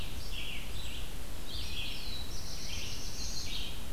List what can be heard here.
Red-eyed Vireo, Black-throated Blue Warbler